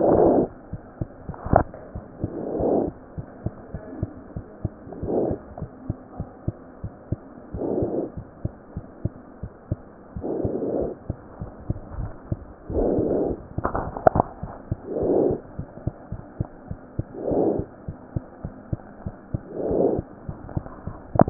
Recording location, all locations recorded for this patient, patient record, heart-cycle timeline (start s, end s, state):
mitral valve (MV)
aortic valve (AV)+pulmonary valve (PV)+tricuspid valve (TV)+mitral valve (MV)
#Age: Child
#Sex: Male
#Height: 72.0 cm
#Weight: 7.97 kg
#Pregnancy status: False
#Murmur: Absent
#Murmur locations: nan
#Most audible location: nan
#Systolic murmur timing: nan
#Systolic murmur shape: nan
#Systolic murmur grading: nan
#Systolic murmur pitch: nan
#Systolic murmur quality: nan
#Diastolic murmur timing: nan
#Diastolic murmur shape: nan
#Diastolic murmur grading: nan
#Diastolic murmur pitch: nan
#Diastolic murmur quality: nan
#Outcome: Abnormal
#Campaign: 2015 screening campaign
0.00	3.10	unannotated
3.10	3.24	S1
3.24	3.41	systole
3.41	3.52	S2
3.52	3.72	diastole
3.72	3.80	S1
3.80	4.00	systole
4.00	4.07	S2
4.07	4.33	diastole
4.33	4.41	S1
4.41	4.61	systole
4.61	4.71	S2
4.71	5.02	diastole
5.02	5.58	unannotated
5.58	5.67	S1
5.67	5.85	systole
5.85	5.96	S2
5.96	6.15	diastole
6.15	6.25	S1
6.25	6.44	systole
6.44	6.53	S2
6.53	6.82	diastole
6.82	6.91	S1
6.91	7.08	systole
7.08	7.18	S2
7.18	7.51	diastole
7.51	21.30	unannotated